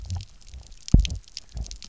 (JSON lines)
{"label": "biophony, double pulse", "recorder": "SoundTrap 300"}